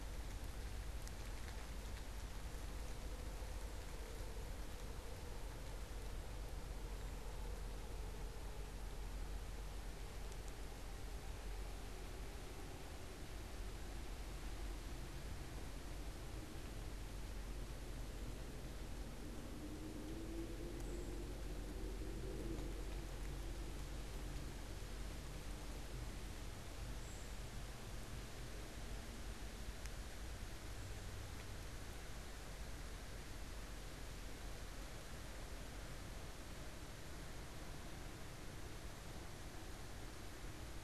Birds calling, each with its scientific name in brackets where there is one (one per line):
Cedar Waxwing (Bombycilla cedrorum)